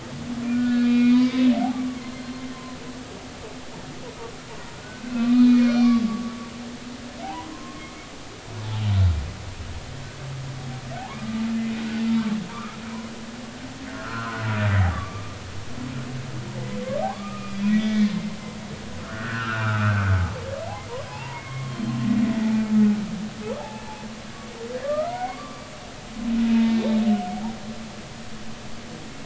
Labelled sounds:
0.5	2.4	humpback whale, 0.93 to 4.3 kHz
4.8	6.6	humpback whale, 1.1 to 4.4 kHz
7.2	7.8	humpback whale, 0.80 to 1.1 kHz
11.0	11.4	humpback whale, 0.80 to 1.2 kHz
12.5	12.8	humpback whale, 0.90 to 1.4 kHz
13.9	15.4	humpback whale, 0.96 to 1.6 kHz
17.1	18.1	humpback whale, 0.93 to 3.5 kHz
19.0	20.1	humpback whale, 1.2 to 1.9 kHz
21.0	21.9	humpback whale, 0.80 to 5.1 kHz
23.6	23.8	humpback whale, 0.80 to 0.96 kHz
24.7	25.6	humpback whale, 0.90 to 2.2 kHz
27.3	27.6	humpback whale, 0.80 to 0.99 kHz

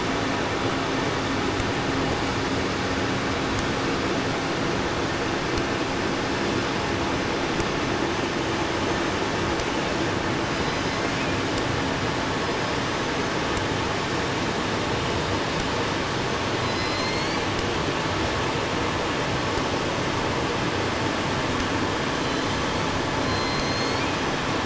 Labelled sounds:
10.2	11.7	killer whale, southern resident, J pod, call S01, 1.3 to 7.6 kHz
16.3	17.8	killer whale, southern resident, J pod, call S01, 1.2 to 8.0 kHz
22.0	24.6	killer whale, southern resident, J pod, call S01, 1.8 to 8.0 kHz

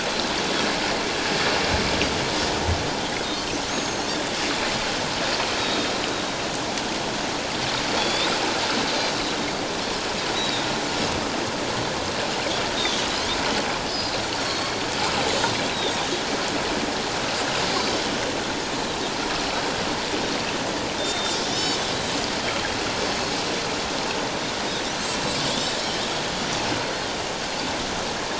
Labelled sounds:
3.7	4.1	Pacific white-sided dolphin, 4.2 to 6.6 kHz
5.6	5.9	Pacific white-sided dolphin, 3.6 to 3.9 kHz
8.0	8.3	Pacific white-sided dolphin, 3.3 to 3.9 kHz
10.3	10.7	Pacific white-sided dolphin, 3.5 to 3.9 kHz
12.8	13.0	Pacific white-sided dolphin, 3.2 to 3.9 kHz
13.8	14.7	Pacific white-sided dolphin, 4.1 to 5.2 kHz
17.7	18.0	Pacific white-sided dolphin, 4.6 to 4.8 kHz
21.0	21.8	Pacific white-sided dolphin, 3.4 to 5.4 kHz
25.5	25.8	Pacific white-sided dolphin, 3.2 to 3.8 kHz

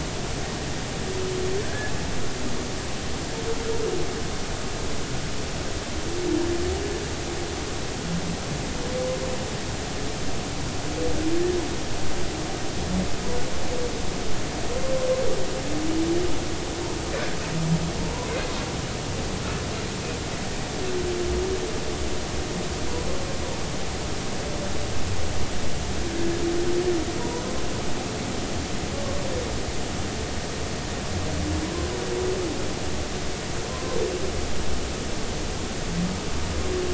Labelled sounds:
1.6	1.9	humpback whale, 1.5 to 1.8 kHz
27.2	27.4	humpback whale, 0.90 to 1.0 kHz

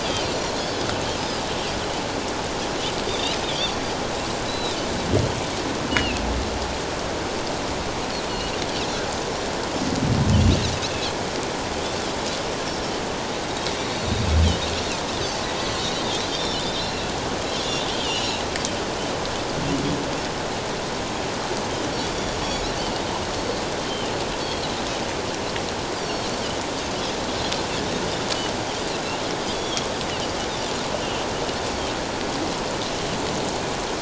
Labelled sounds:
0.0	1.4	Pacific white-sided dolphin, 4.5 to 5.2 kHz
3.1	3.8	Pacific white-sided dolphin, 3.2 to 6.0 kHz
4.5	4.8	Pacific white-sided dolphin, 3.5 to 4.1 kHz
5.9	6.2	Pacific white-sided dolphin, 2.5 to 3.0 kHz
8.3	8.6	Pacific white-sided dolphin, 4.2 to 4.5 kHz
10.9	11.2	Pacific white-sided dolphin, 3.1 to 3.5 kHz
16.3	17.1	Pacific white-sided dolphin, 2.6 to 4.2 kHz
17.6	18.4	Pacific white-sided dolphin, 2.5 to 4.2 kHz
23.8	24.6	Pacific white-sided dolphin, 2.8 to 3.5 kHz
26.0	26.3	Pacific white-sided dolphin, 4.3 to 4.9 kHz
29.5	29.9	Pacific white-sided dolphin, 3.1 to 3.6 kHz

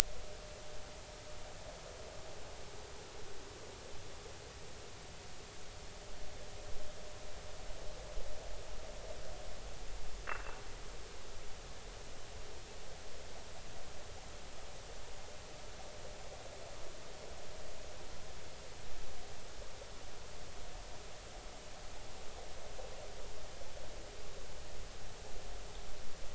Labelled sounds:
10.3	10.6	vessel noise, 2.6 to 2.8 kHz

